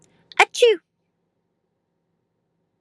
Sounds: Sneeze